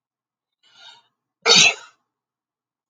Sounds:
Sneeze